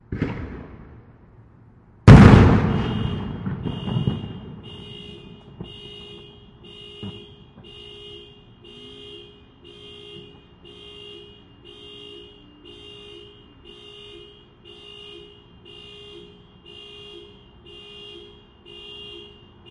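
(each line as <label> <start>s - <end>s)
Two booming sounds resembling explosions, the first fading away and the second louder, similar to fireworks. 0.1s - 2.6s
Continuous car honking with faint crackling noises in the background that stop after a while, leaving honking alongside the sound of multiple vehicles driving. 3.0s - 19.7s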